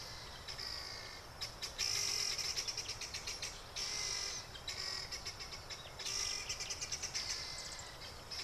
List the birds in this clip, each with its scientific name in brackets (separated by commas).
Helmeted Guineafowl (Numida meleagris)